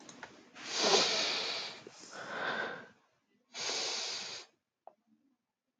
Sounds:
Sniff